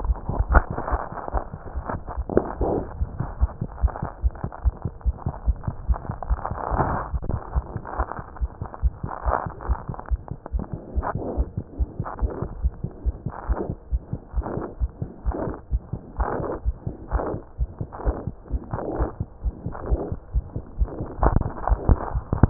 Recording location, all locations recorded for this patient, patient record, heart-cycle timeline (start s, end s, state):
mitral valve (MV)
mitral valve (MV)
#Age: Neonate
#Sex: Male
#Height: 50.0 cm
#Weight: 3.53 kg
#Pregnancy status: False
#Murmur: Absent
#Murmur locations: nan
#Most audible location: nan
#Systolic murmur timing: nan
#Systolic murmur shape: nan
#Systolic murmur grading: nan
#Systolic murmur pitch: nan
#Systolic murmur quality: nan
#Diastolic murmur timing: nan
#Diastolic murmur shape: nan
#Diastolic murmur grading: nan
#Diastolic murmur pitch: nan
#Diastolic murmur quality: nan
#Outcome: Normal
#Campaign: 2015 screening campaign
0.00	11.36	unannotated
11.36	11.48	S1
11.48	11.56	systole
11.56	11.64	S2
11.64	11.77	diastole
11.77	11.88	S1
11.88	11.97	systole
11.97	12.06	S2
12.06	12.21	diastole
12.21	12.30	S1
12.30	12.40	systole
12.40	12.47	S2
12.47	12.62	diastole
12.62	12.70	S1
12.70	12.82	systole
12.82	12.88	S2
12.88	13.05	diastole
13.05	13.12	S1
13.12	13.24	systole
13.24	13.32	S2
13.32	13.47	diastole
13.47	13.58	S1
13.58	13.68	systole
13.68	13.75	S2
13.75	13.91	diastole
13.91	13.99	S1
13.99	14.12	systole
14.12	14.18	S2
14.18	14.34	diastole
14.34	14.43	S1
14.43	14.56	systole
14.56	14.61	S2
14.61	14.80	diastole
14.80	14.88	S1
14.88	15.01	systole
15.01	15.07	S2
15.07	15.25	diastole
15.25	15.32	S1
15.32	15.46	systole
15.46	15.51	S2
15.51	15.71	diastole
15.71	15.79	S1
15.79	15.92	systole
15.92	15.99	S2
15.99	16.18	diastole
16.18	16.26	S1
16.26	16.39	systole
16.39	16.44	S2
16.44	16.64	diastole
16.64	16.74	S1
16.74	16.85	systole
16.85	16.91	S2
16.91	17.11	diastole
17.11	17.21	S1
17.21	17.32	systole
17.32	17.38	S2
17.38	17.59	diastole
17.59	17.67	S1
17.67	17.79	systole
17.79	17.86	S2
17.86	18.04	diastole
18.04	18.13	S1
18.13	18.26	systole
18.26	18.31	S2
18.31	18.51	diastole
18.51	18.59	S1
18.59	18.72	systole
18.72	18.77	S2
18.77	18.99	diastole
18.99	19.07	S1
19.07	19.19	systole
19.19	19.25	S2
19.25	19.43	diastole
19.43	19.52	S1
19.52	19.65	systole
19.65	19.71	S2
19.71	19.90	diastole
19.90	19.98	S1
19.98	20.11	systole
20.11	20.18	S2
20.18	20.34	diastole
20.34	20.42	S1
20.42	20.54	systole
20.54	20.62	S2
20.62	20.79	diastole
20.79	20.87	S1
20.87	21.00	systole
21.00	21.05	S2
21.05	22.50	unannotated